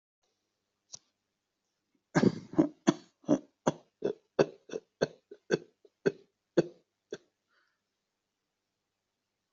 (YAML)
expert_labels:
- quality: good
  cough_type: dry
  dyspnea: false
  wheezing: false
  stridor: false
  choking: false
  congestion: false
  nothing: true
  diagnosis: obstructive lung disease
  severity: unknown
age: 40
gender: female
respiratory_condition: true
fever_muscle_pain: true
status: COVID-19